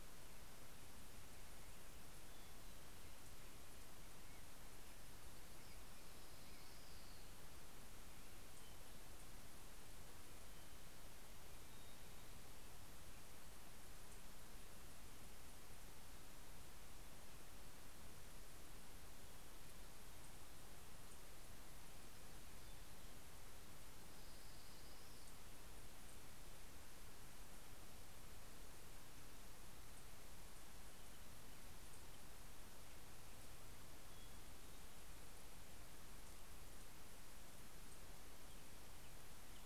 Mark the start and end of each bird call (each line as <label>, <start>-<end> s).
Orange-crowned Warbler (Leiothlypis celata), 4.8-8.5 s
Orange-crowned Warbler (Leiothlypis celata), 23.5-26.5 s